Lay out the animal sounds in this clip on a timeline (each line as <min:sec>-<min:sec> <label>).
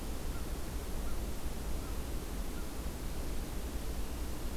0:00.0-0:02.9 American Crow (Corvus brachyrhynchos)